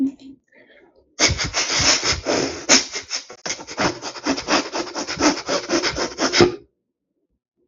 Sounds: Sniff